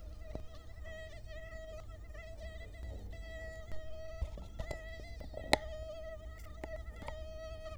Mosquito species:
Culex quinquefasciatus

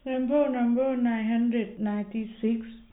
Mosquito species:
no mosquito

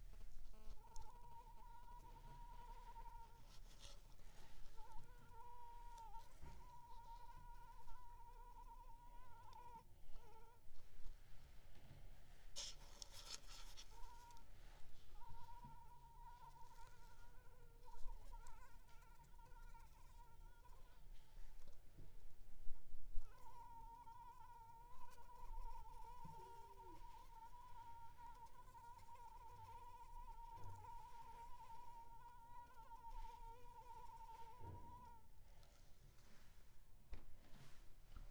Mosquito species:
Anopheles arabiensis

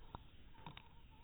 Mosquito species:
mosquito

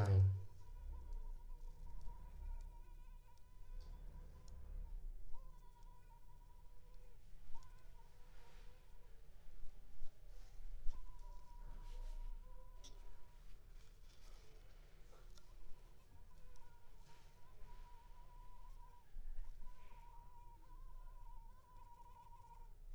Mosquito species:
Culex pipiens complex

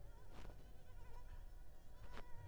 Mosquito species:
Culex pipiens complex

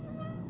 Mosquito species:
Aedes albopictus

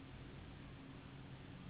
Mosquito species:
Anopheles gambiae s.s.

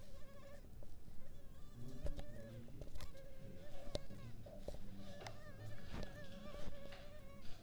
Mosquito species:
mosquito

